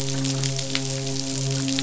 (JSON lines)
{"label": "biophony, midshipman", "recorder": "SoundTrap 500"}